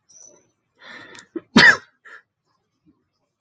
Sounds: Sneeze